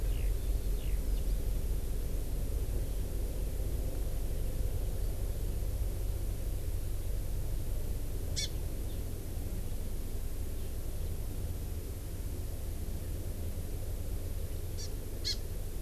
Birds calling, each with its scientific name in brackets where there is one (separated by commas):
Hawaii Amakihi (Chlorodrepanis virens), Eurasian Skylark (Alauda arvensis)